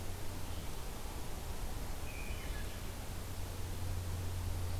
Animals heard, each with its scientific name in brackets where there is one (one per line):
Wood Thrush (Hylocichla mustelina)